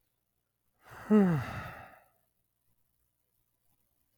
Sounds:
Sigh